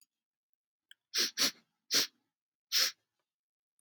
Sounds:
Sniff